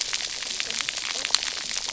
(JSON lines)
{"label": "biophony, cascading saw", "recorder": "SoundTrap 300"}